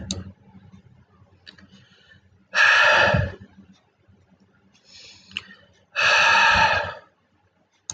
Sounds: Sigh